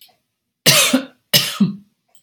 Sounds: Cough